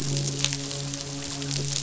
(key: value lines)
label: biophony, midshipman
recorder: SoundTrap 500